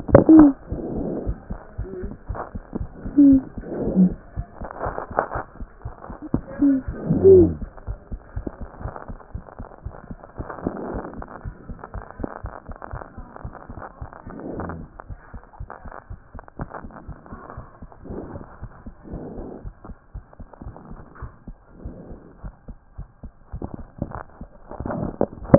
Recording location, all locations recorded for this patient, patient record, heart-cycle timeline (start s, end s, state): aortic valve (AV)
aortic valve (AV)+mitral valve (MV)
#Age: Adolescent
#Sex: Female
#Height: 115.0 cm
#Weight: 18.6 kg
#Pregnancy status: False
#Murmur: Absent
#Murmur locations: nan
#Most audible location: nan
#Systolic murmur timing: nan
#Systolic murmur shape: nan
#Systolic murmur grading: nan
#Systolic murmur pitch: nan
#Systolic murmur quality: nan
#Diastolic murmur timing: nan
#Diastolic murmur shape: nan
#Diastolic murmur grading: nan
#Diastolic murmur pitch: nan
#Diastolic murmur quality: nan
#Outcome: Normal
#Campaign: 2014 screening campaign
0.00	15.08	unannotated
15.08	15.10	diastole
15.10	15.20	S1
15.20	15.32	systole
15.32	15.42	S2
15.42	15.60	diastole
15.60	15.70	S1
15.70	15.84	systole
15.84	15.94	S2
15.94	16.12	diastole
16.12	16.20	S1
16.20	16.34	systole
16.34	16.44	S2
16.44	16.60	diastole
16.60	16.70	S1
16.70	16.82	systole
16.82	16.92	S2
16.92	17.08	diastole
17.08	17.18	S1
17.18	17.32	systole
17.32	17.40	S2
17.40	17.58	diastole
17.58	17.66	S1
17.66	17.82	systole
17.82	17.90	S2
17.90	18.08	diastole
18.08	18.20	S1
18.20	18.34	systole
18.34	18.44	S2
18.44	18.62	diastole
18.62	18.72	S1
18.72	18.86	systole
18.86	18.94	S2
18.94	19.12	diastole
19.12	19.22	S1
19.22	19.36	systole
19.36	19.48	S2
19.48	19.64	diastole
19.64	19.74	S1
19.74	19.88	systole
19.88	19.98	S2
19.98	20.14	diastole
20.14	20.24	S1
20.24	20.38	systole
20.38	20.48	S2
20.48	20.64	diastole
20.64	20.76	S1
20.76	20.90	systole
20.90	21.00	S2
21.00	21.22	diastole
21.22	21.32	S1
21.32	21.48	systole
21.48	21.58	S2
21.58	21.84	diastole
21.84	21.94	S1
21.94	22.10	systole
22.10	25.58	unannotated